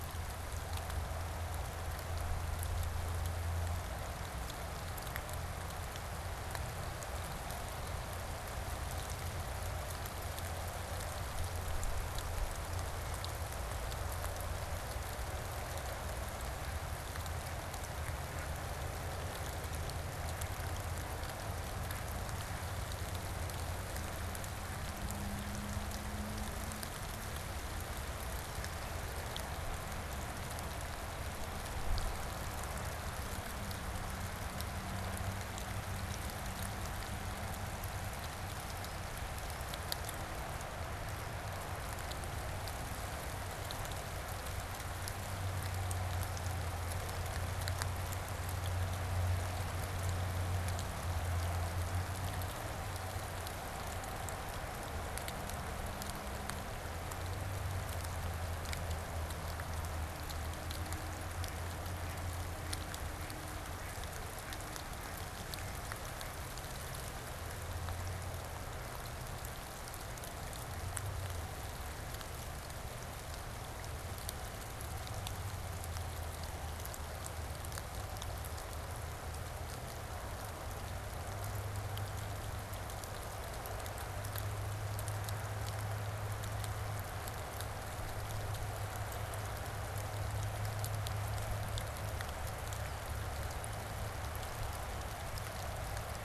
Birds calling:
Mallard (Anas platyrhynchos)

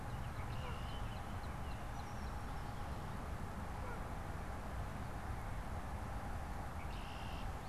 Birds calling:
Red-winged Blackbird (Agelaius phoeniceus)
Baltimore Oriole (Icterus galbula)
American Goldfinch (Spinus tristis)

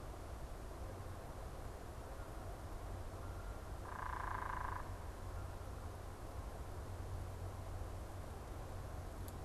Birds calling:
unidentified bird

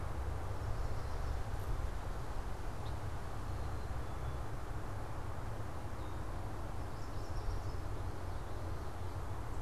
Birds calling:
Yellow Warbler (Setophaga petechia)

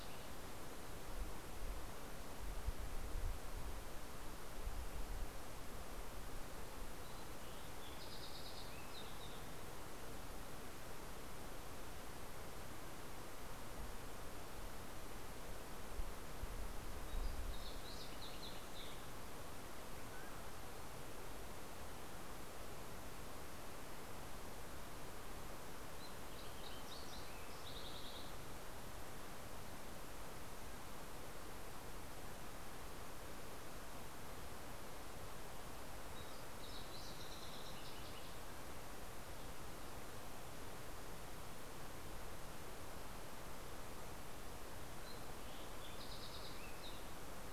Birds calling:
Fox Sparrow (Passerella iliaca)

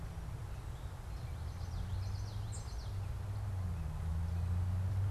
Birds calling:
unidentified bird
Common Yellowthroat (Geothlypis trichas)

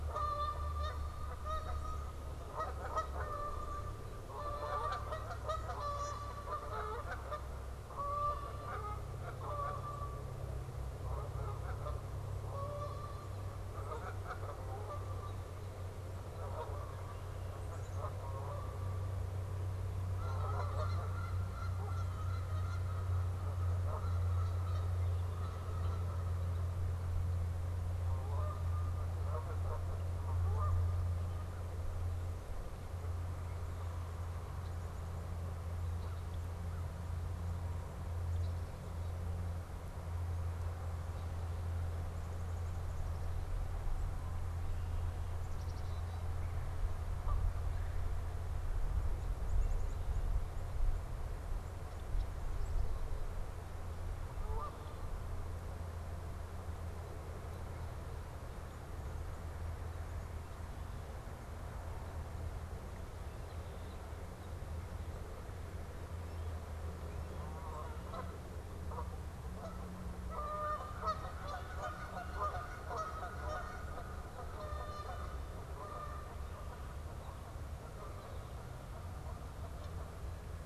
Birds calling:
Black-capped Chickadee (Poecile atricapillus)
Canada Goose (Branta canadensis)
Red-bellied Woodpecker (Melanerpes carolinus)

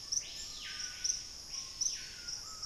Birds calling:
Screaming Piha (Lipaugus vociferans)

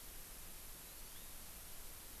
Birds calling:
Hawaii Amakihi (Chlorodrepanis virens)

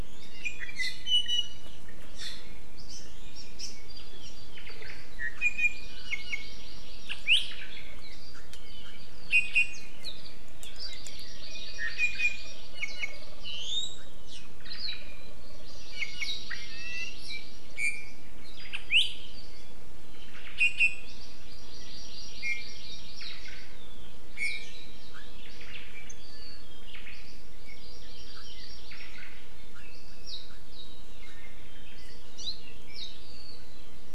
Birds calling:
Omao (Myadestes obscurus)
Hawaii Amakihi (Chlorodrepanis virens)
Iiwi (Drepanis coccinea)

